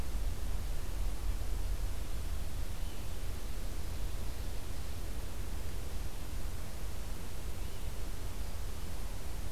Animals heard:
forest ambience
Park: Acadia National Park